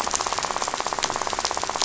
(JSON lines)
{"label": "biophony, rattle", "recorder": "SoundTrap 500"}